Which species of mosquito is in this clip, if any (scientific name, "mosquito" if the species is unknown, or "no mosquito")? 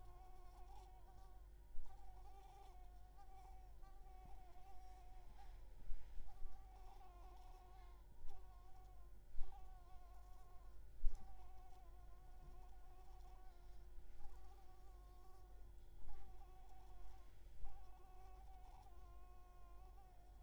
Anopheles coustani